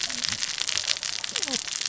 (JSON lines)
{"label": "biophony, cascading saw", "recorder": "SoundTrap 600 or HydroMoth"}